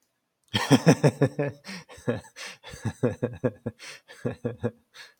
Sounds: Laughter